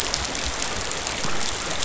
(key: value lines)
label: biophony
recorder: SoundTrap 500